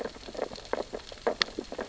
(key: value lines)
label: biophony, sea urchins (Echinidae)
recorder: SoundTrap 600 or HydroMoth